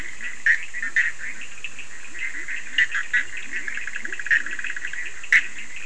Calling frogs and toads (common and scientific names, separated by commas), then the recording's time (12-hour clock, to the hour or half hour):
Bischoff's tree frog (Boana bischoffi), Leptodactylus latrans, Cochran's lime tree frog (Sphaenorhynchus surdus)
12:30am